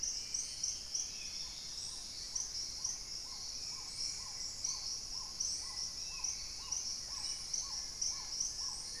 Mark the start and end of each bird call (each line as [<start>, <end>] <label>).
[0.00, 2.42] Dusky-throated Antshrike (Thamnomanes ardesiacus)
[0.00, 9.00] Hauxwell's Thrush (Turdus hauxwelli)
[0.00, 9.00] Paradise Tanager (Tangara chilensis)
[0.52, 2.82] Plain-winged Antshrike (Thamnophilus schistaceus)
[1.22, 9.00] Black-tailed Trogon (Trogon melanurus)
[3.32, 4.02] unidentified bird
[7.52, 9.00] Long-billed Woodcreeper (Nasica longirostris)